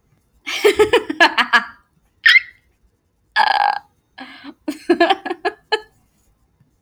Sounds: Laughter